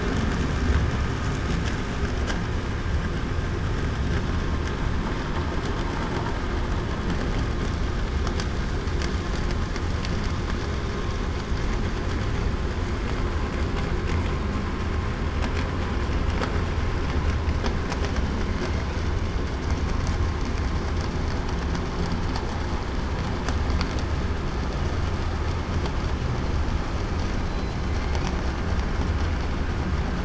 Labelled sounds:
27.4	27.8	killer whale, southern resident, 3.9 to 4.1 kHz

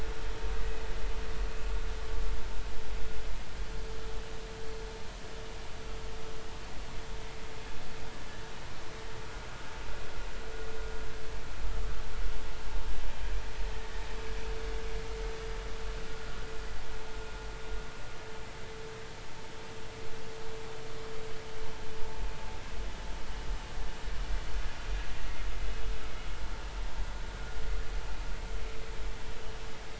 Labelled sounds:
16.1	16.5	vessel noise, 1.4 to 1.5 kHz

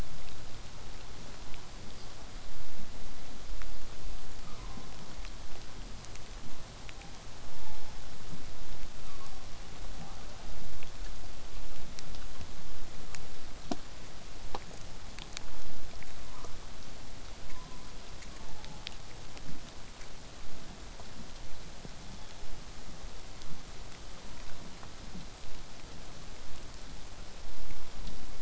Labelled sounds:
4.4	4.9	killer whale, southern resident, 0.62 to 1.4 kHz
6.9	7.2	killer whale, southern resident, 0.62 to 0.93 kHz
7.5	8.0	killer whale, southern resident, 0.54 to 1.1 kHz
9.0	9.5	killer whale, southern resident, 0.85 to 1.3 kHz
16.1	16.6	killer whale, southern resident, 0.23 to 1.6 kHz
17.5	18.9	killer whale, southern resident, 0.66 to 1.2 kHz
22.0	22.4	killer whale, southern resident, 3.2 to 5.5 kHz
23.4	28.4	vessel noise, 0 to 8.0 kHz

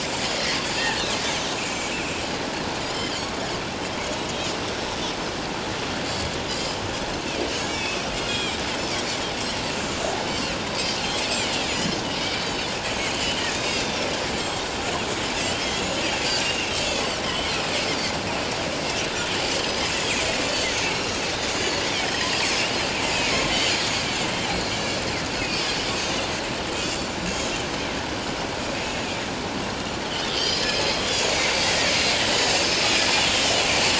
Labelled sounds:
1.6	1.9	Pacific white-sided dolphin, 2.2 to 6.4 kHz
6.0	6.8	Pacific white-sided dolphin, 4.3 to 5.4 kHz
7.6	8.6	Pacific white-sided dolphin, 2.2 to 6.9 kHz
9.8	10.5	Pacific white-sided dolphin, 4.0 to 7.5 kHz
11.1	14.0	Pacific white-sided dolphin, 2.2 to 7.9 kHz
15.4	15.8	Pacific white-sided dolphin, 2.8 to 3.3 kHz
16.4	17.6	Pacific white-sided dolphin, 2.6 to 7.2 kHz
19.6	20.1	Pacific white-sided dolphin, 4.9 to 7.0 kHz
20.9	22.7	Pacific white-sided dolphin, 4.0 to 7.7 kHz
23.1	23.8	Pacific white-sided dolphin, 4.1 to 7.0 kHz
24.8	25.8	Pacific white-sided dolphin, 4.4 to 6.3 kHz
26.7	27.6	Pacific white-sided dolphin, 3.3 to 7.3 kHz
30.3	31.0	Pacific white-sided dolphin, 4.0 to 5.2 kHz
32.4	32.8	Pacific white-sided dolphin, 5.1 to 5.4 kHz
33.3	33.6	Pacific white-sided dolphin, 2.8 to 3.2 kHz

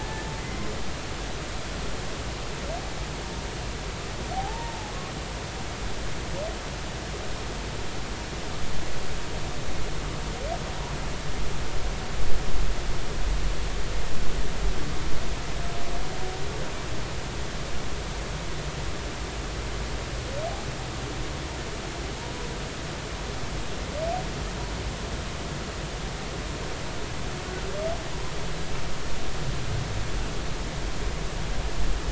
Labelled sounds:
0.0	0.7	humpback whale, 1.7 to 2.2 kHz
4.3	4.9	humpback whale, 0.80 to 0.99 kHz

